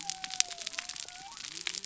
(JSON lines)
{"label": "biophony", "recorder": "SoundTrap 300"}